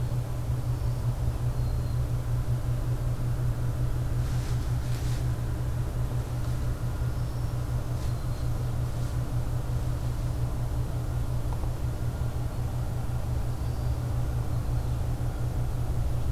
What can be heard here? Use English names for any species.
Black-throated Green Warbler